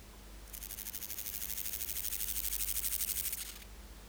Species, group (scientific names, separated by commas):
Stenobothrus stigmaticus, Orthoptera